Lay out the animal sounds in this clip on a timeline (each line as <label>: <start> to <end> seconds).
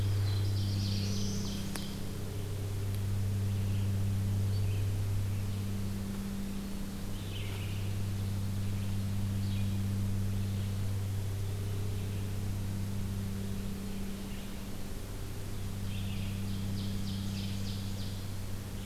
Black-throated Blue Warbler (Setophaga caerulescens): 0.0 to 1.4 seconds
Ovenbird (Seiurus aurocapilla): 0.5 to 2.2 seconds
Red-eyed Vireo (Vireo olivaceus): 7.1 to 18.9 seconds
Ovenbird (Seiurus aurocapilla): 16.3 to 18.2 seconds